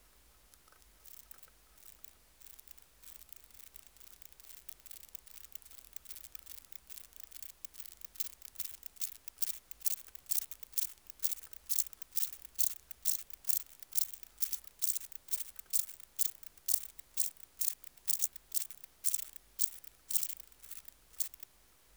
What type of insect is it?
orthopteran